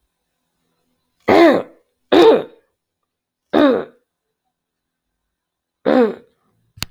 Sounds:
Throat clearing